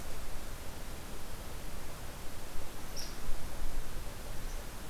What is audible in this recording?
Red Squirrel